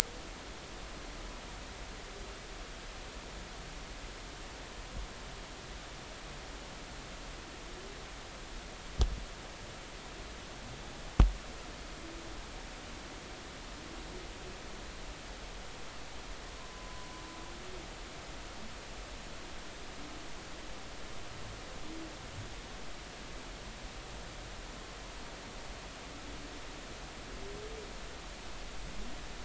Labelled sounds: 16.7	17.1	humpback whale, 0.96 to 1.0 kHz

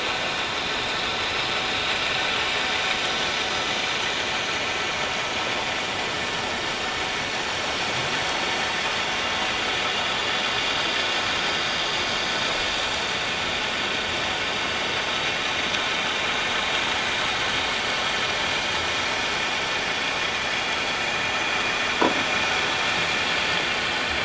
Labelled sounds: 12.8	13.1	vessel noise, 7.1 to 7.4 kHz

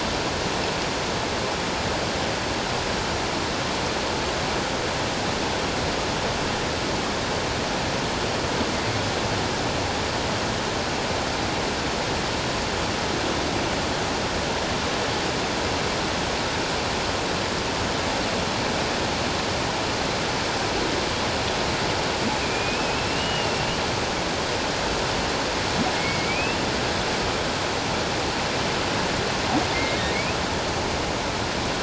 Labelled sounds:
22.4	23.7	humpback whale, 2.3 to 3.0 kHz
25.9	26.6	humpback whale, 2.1 to 2.8 kHz
29.7	30.0	humpback whale, 2.0 to 2.2 kHz

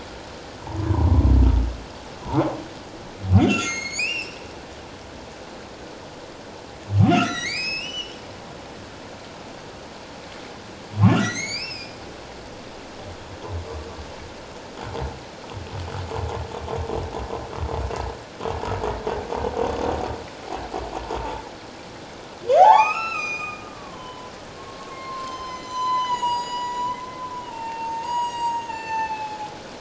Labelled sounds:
3.4	4.4	humpback whale, 1.3 to 7.1 kHz
7.1	8.2	humpback whale, 1.2 to 8.0 kHz
11.2	12.0	humpback whale, 1.8 to 7.1 kHz
22.6	24.3	humpback whale, 0.78 to 7.6 kHz
24.6	29.5	humpback whale, 0.78 to 7.9 kHz

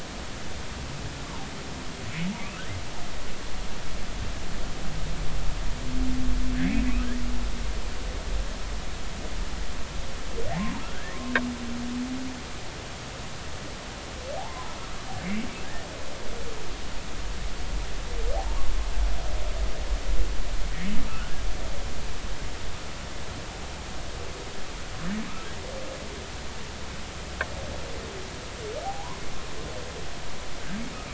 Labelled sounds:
2.4	2.7	humpback whale, 2.0 to 3.0 kHz
6.6	6.9	humpback whale, 2.0 to 2.7 kHz
10.8	11.2	humpback whale, 1.3 to 2.3 kHz
14.4	14.7	humpback whale, 0.80 to 1.1 kHz
21.1	21.3	humpback whale, 1.2 to 1.6 kHz
28.8	29.2	humpback whale, 0.80 to 1.1 kHz

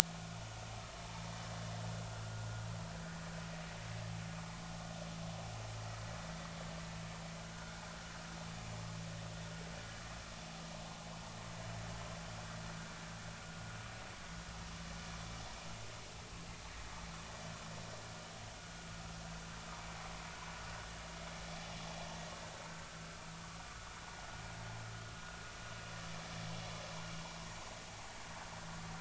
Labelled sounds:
0.1	0.4	vessel noise, 1.4 to 1.5 kHz
7.5	7.8	vessel noise, 1.3 to 1.7 kHz

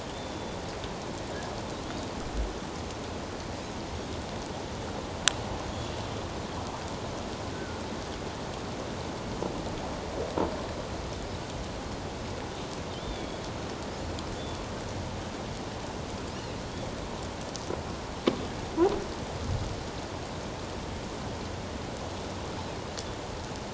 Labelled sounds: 0.1	0.6	killer whale, offshore, 3.1 to 3.6 kHz
5.6	5.9	killer whale, offshore, 6.4 to 6.9 kHz
7.5	7.8	killer whale, offshore, 1.4 to 1.6 kHz
13.0	13.5	killer whale, offshore, 2.2 to 3.6 kHz
14.4	14.6	killer whale, offshore, 3.4 to 3.6 kHz
16.6	16.9	killer whale, offshore, 3.1 to 3.5 kHz

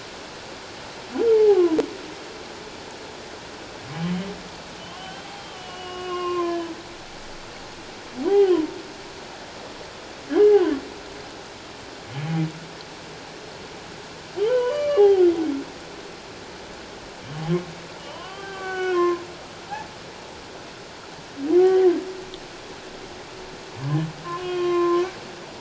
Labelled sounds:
1.3	1.6	humpback whale, 0.78 to 0.94 kHz
3.9	6.7	humpback whale, 0.97 to 3.3 kHz
8.3	8.8	humpback whale, 0.78 to 1.1 kHz
14.4	15.3	humpback whale, 0.78 to 3.4 kHz
18.0	19.2	humpback whale, 0.78 to 3.3 kHz
21.6	21.9	humpback whale, 0.78 to 2.0 kHz
24.2	25.0	humpback whale, 0.97 to 3.3 kHz

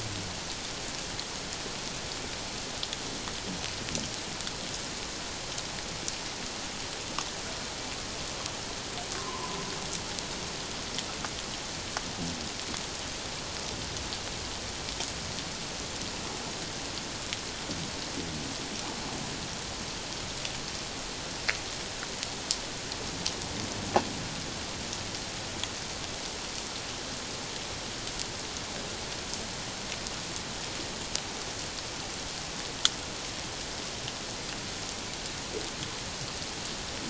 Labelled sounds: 9.2	9.6	humpback whale, 0.88 to 1.1 kHz

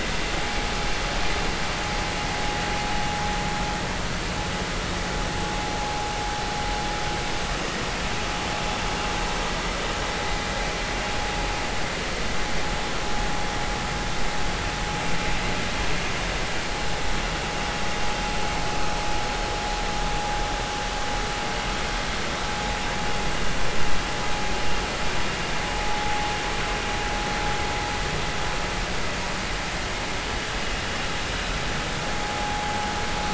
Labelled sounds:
32.4	32.6	vessel noise, 0.80 to 0.86 kHz

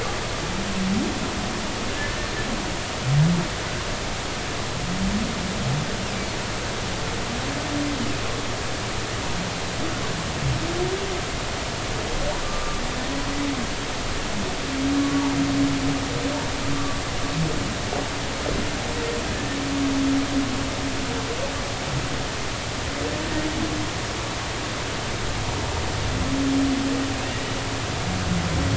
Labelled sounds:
12.4	12.8	humpback whale, 1.1 to 1.3 kHz
15.0	15.3	humpback whale, 1.1 to 1.2 kHz
16.7	17.0	humpback whale, 1.1 to 1.2 kHz

